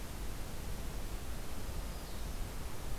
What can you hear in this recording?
Black-throated Green Warbler